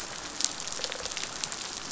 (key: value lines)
label: biophony
recorder: SoundTrap 500